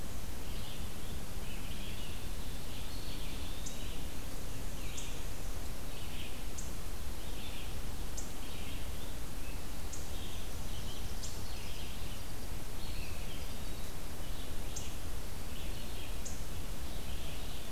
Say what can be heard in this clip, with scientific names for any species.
Mniotilta varia, Vireo olivaceus, Contopus virens